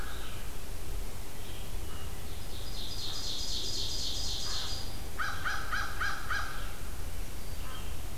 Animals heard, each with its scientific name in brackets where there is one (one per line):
American Crow (Corvus brachyrhynchos)
Ovenbird (Seiurus aurocapilla)
Red-eyed Vireo (Vireo olivaceus)